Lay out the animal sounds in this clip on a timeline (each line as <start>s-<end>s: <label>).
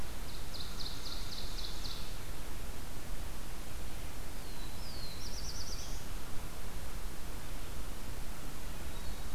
0.0s-2.2s: Ovenbird (Seiurus aurocapilla)
4.1s-6.3s: Black-throated Blue Warbler (Setophaga caerulescens)